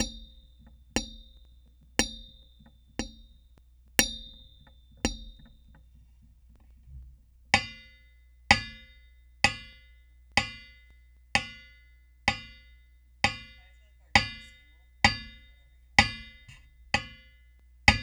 Is the object being hit made of metal?
yes